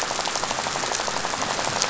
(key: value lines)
label: biophony, rattle
recorder: SoundTrap 500